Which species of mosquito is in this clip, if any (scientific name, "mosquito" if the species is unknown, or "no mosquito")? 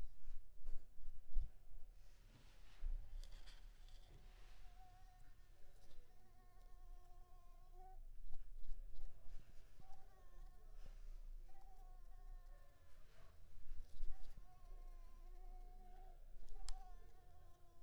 Anopheles coustani